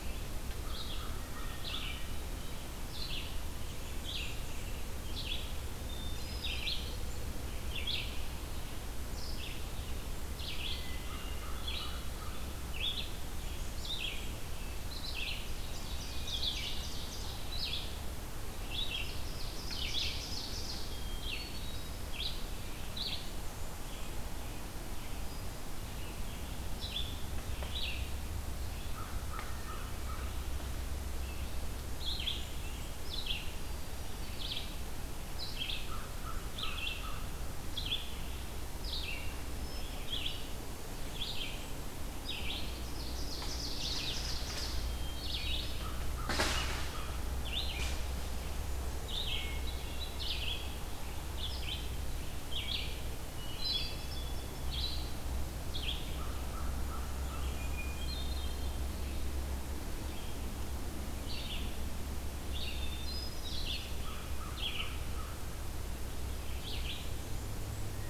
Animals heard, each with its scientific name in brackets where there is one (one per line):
American Crow (Corvus brachyrhynchos)
Red-eyed Vireo (Vireo olivaceus)
Blackburnian Warbler (Setophaga fusca)
Ovenbird (Seiurus aurocapilla)
Hermit Thrush (Catharus guttatus)